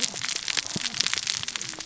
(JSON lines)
{"label": "biophony, cascading saw", "recorder": "SoundTrap 600 or HydroMoth"}